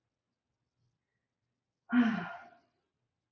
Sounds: Sigh